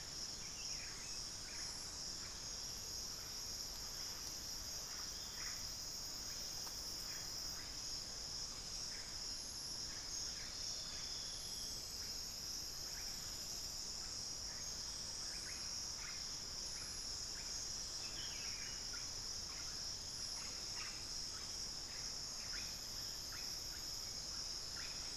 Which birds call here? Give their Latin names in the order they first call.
Psarocolius angustifrons, Saltator maximus, Dendroma erythroptera